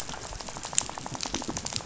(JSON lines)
{"label": "biophony, rattle", "recorder": "SoundTrap 500"}